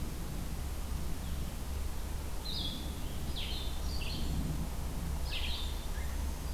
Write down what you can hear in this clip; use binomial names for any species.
Vireo solitarius, Setophaga virens